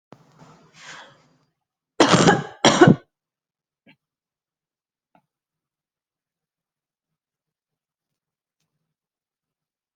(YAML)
expert_labels:
- quality: good
  cough_type: wet
  dyspnea: false
  wheezing: false
  stridor: false
  choking: false
  congestion: false
  nothing: true
  diagnosis: lower respiratory tract infection
  severity: mild
age: 32
gender: female
respiratory_condition: false
fever_muscle_pain: false
status: COVID-19